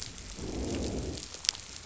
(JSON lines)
{"label": "biophony, growl", "recorder": "SoundTrap 500"}